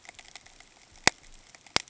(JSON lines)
{"label": "ambient", "recorder": "HydroMoth"}